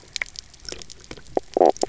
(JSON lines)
{"label": "biophony, knock croak", "recorder": "SoundTrap 300"}